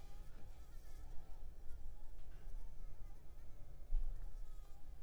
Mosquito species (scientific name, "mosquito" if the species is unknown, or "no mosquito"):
Anopheles arabiensis